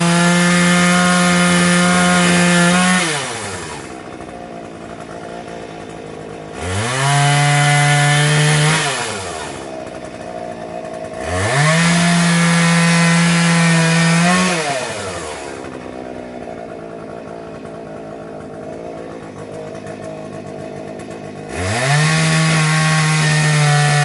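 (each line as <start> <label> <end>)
0.0 A chainsaw cuts through trees loudly with the volume rising and falling periodically. 24.0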